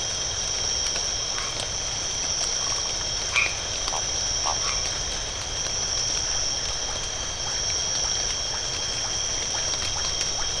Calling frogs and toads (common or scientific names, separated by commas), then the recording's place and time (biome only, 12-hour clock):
Phyllomedusa distincta, white-edged tree frog
Atlantic Forest, 7:30pm